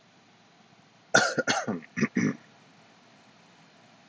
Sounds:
Throat clearing